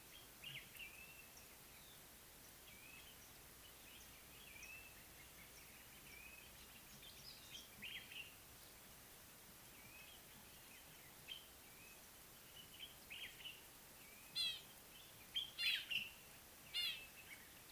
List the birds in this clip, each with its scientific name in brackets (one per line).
Common Bulbul (Pycnonotus barbatus)